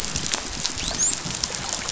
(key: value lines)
label: biophony, dolphin
recorder: SoundTrap 500